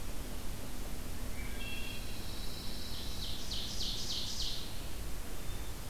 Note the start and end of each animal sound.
1.2s-2.4s: Wood Thrush (Hylocichla mustelina)
1.7s-3.3s: Pine Warbler (Setophaga pinus)
2.6s-4.8s: Ovenbird (Seiurus aurocapilla)
5.3s-5.9s: Wood Thrush (Hylocichla mustelina)

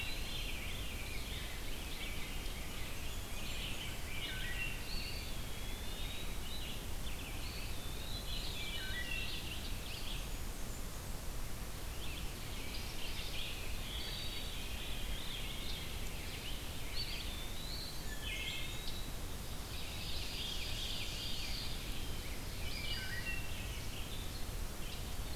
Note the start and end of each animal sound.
0.0s-0.7s: Eastern Wood-Pewee (Contopus virens)
0.0s-1.3s: Veery (Catharus fuscescens)
0.0s-25.4s: Red-eyed Vireo (Vireo olivaceus)
0.3s-5.3s: Rose-breasted Grosbeak (Pheucticus ludovicianus)
1.5s-3.0s: Ovenbird (Seiurus aurocapilla)
2.6s-4.1s: Blackburnian Warbler (Setophaga fusca)
4.1s-4.7s: Wood Thrush (Hylocichla mustelina)
4.7s-6.6s: Eastern Wood-Pewee (Contopus virens)
7.4s-8.8s: Eastern Wood-Pewee (Contopus virens)
8.3s-9.4s: Veery (Catharus fuscescens)
8.5s-9.3s: Wood Thrush (Hylocichla mustelina)
10.0s-11.0s: Blackburnian Warbler (Setophaga fusca)
12.0s-13.5s: Ovenbird (Seiurus aurocapilla)
13.8s-14.5s: Wood Thrush (Hylocichla mustelina)
14.3s-16.1s: Veery (Catharus fuscescens)
15.2s-17.3s: Rose-breasted Grosbeak (Pheucticus ludovicianus)
16.6s-19.2s: Eastern Wood-Pewee (Contopus virens)
17.3s-19.0s: Blackburnian Warbler (Setophaga fusca)
17.8s-18.8s: Wood Thrush (Hylocichla mustelina)
19.6s-21.6s: Veery (Catharus fuscescens)
19.8s-21.7s: Ovenbird (Seiurus aurocapilla)
21.2s-22.3s: Eastern Wood-Pewee (Contopus virens)
22.5s-23.8s: Wood Thrush (Hylocichla mustelina)

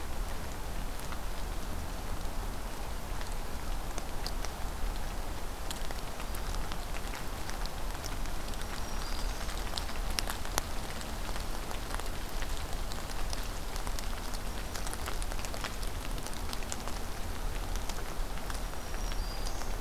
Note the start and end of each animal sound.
8.4s-9.5s: Black-throated Green Warbler (Setophaga virens)
18.5s-19.8s: Black-throated Green Warbler (Setophaga virens)

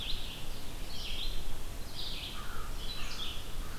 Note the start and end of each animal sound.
0.0s-3.8s: Red-eyed Vireo (Vireo olivaceus)
2.2s-3.8s: American Crow (Corvus brachyrhynchos)

